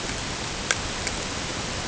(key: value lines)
label: ambient
recorder: HydroMoth